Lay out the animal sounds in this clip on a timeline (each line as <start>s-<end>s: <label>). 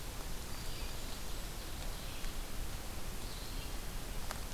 0.0s-1.2s: Black-throated Green Warbler (Setophaga virens)
0.0s-4.5s: Red-eyed Vireo (Vireo olivaceus)